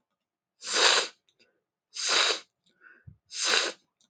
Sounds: Sniff